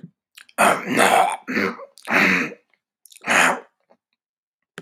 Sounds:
Throat clearing